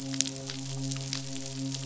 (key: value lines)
label: biophony, midshipman
recorder: SoundTrap 500